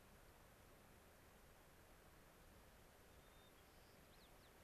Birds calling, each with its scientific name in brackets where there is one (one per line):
White-crowned Sparrow (Zonotrichia leucophrys)